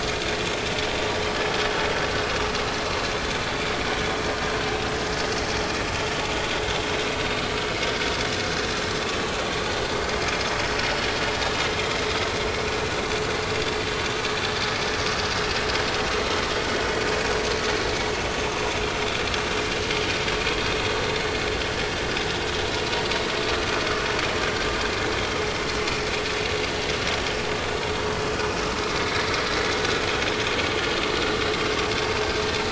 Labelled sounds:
28.2	28.4	vessel noise, 4.8 to 5.2 kHz

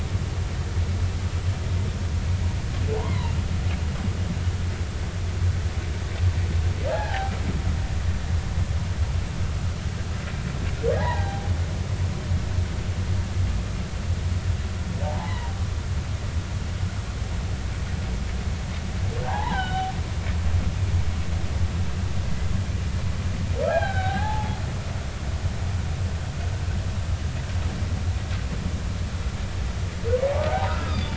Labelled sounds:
2.9	3.3	humpback whale, 0.80 to 1.2 kHz
6.9	7.3	humpback whale, 0.80 to 1.9 kHz
11.0	11.5	humpback whale, 0.80 to 2.1 kHz
15.0	15.5	humpback whale, 0.80 to 3.0 kHz
19.2	19.9	humpback whale, 0.80 to 3.2 kHz
23.7	24.6	humpback whale, 0.80 to 4.0 kHz
30.5	31.1	humpback whale, 0.80 to 3.8 kHz

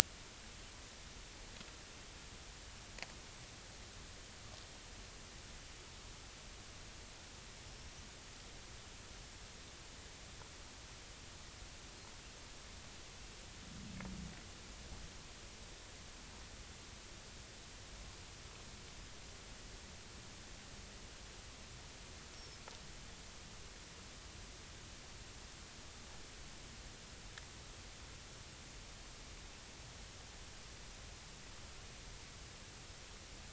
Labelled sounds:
7.7	7.9	small unidentified odontocete, 5.2 to 5.6 kHz

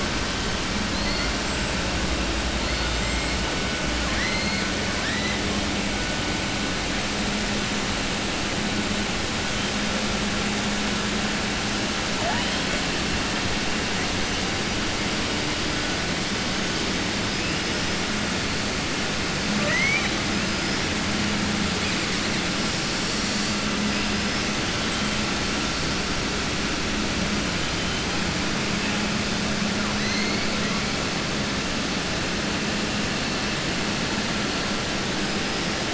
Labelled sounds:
4.0	4.6	killer whale, southern resident, 1.0 to 2.2 kHz
19.5	20.2	killer whale, southern resident, 0.55 to 4.0 kHz

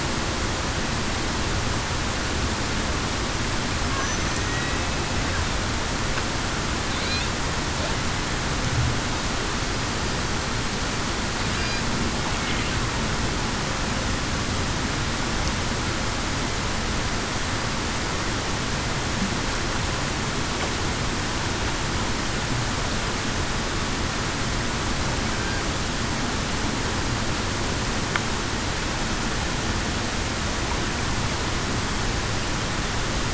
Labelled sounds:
4.4	4.8	killer whale, Bigg's (transient), 1.85 to 1.95 kHz

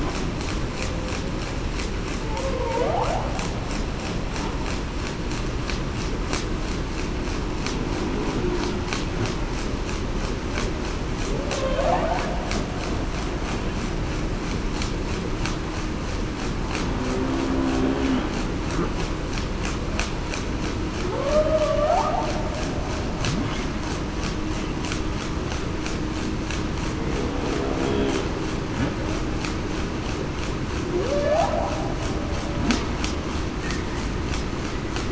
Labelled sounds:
2.3	3.0	humpback whale, 0.45 to 0.94 kHz
11.3	12.0	humpback whale, 0.38 to 0.91 kHz
21.1	22.0	humpback whale, 0.47 to 0.82 kHz
31.1	31.7	humpback whale, 0.52 to 0.87 kHz

